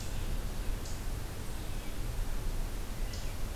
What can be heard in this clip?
Red-eyed Vireo